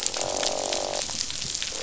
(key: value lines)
label: biophony, croak
recorder: SoundTrap 500